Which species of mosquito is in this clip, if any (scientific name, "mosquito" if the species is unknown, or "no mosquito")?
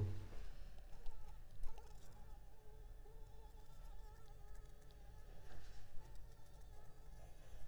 Anopheles arabiensis